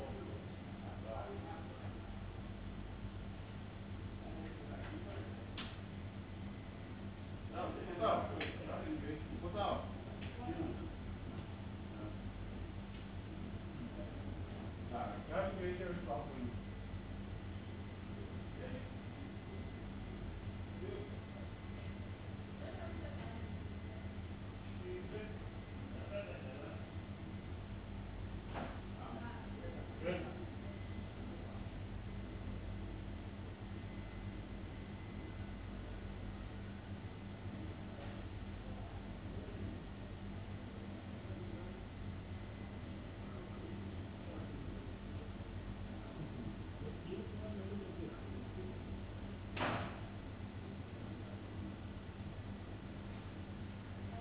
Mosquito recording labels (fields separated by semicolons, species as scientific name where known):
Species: no mosquito; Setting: insect culture